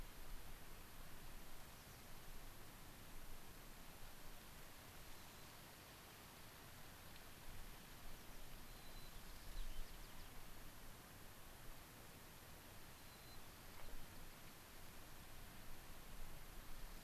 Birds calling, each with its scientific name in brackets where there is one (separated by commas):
White-crowned Sparrow (Zonotrichia leucophrys), unidentified bird